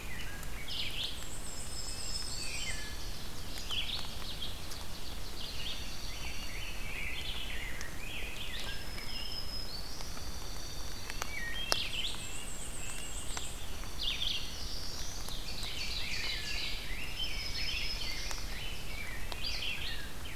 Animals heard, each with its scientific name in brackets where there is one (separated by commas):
Red-breasted Nuthatch (Sitta canadensis), Black-throated Blue Warbler (Setophaga caerulescens), Black-throated Green Warbler (Setophaga virens), Dark-eyed Junco (Junco hyemalis), Red-eyed Vireo (Vireo olivaceus), Wood Thrush (Hylocichla mustelina), Ovenbird (Seiurus aurocapilla), Black-and-white Warbler (Mniotilta varia), Rose-breasted Grosbeak (Pheucticus ludovicianus)